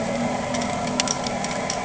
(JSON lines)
{"label": "anthrophony, boat engine", "recorder": "HydroMoth"}